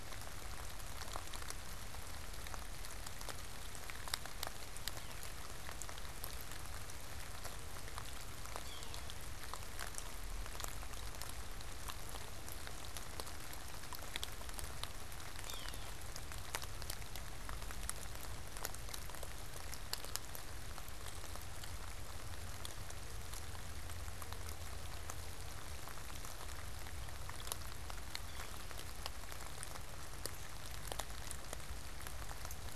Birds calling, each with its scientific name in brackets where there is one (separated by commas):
Yellow-bellied Sapsucker (Sphyrapicus varius)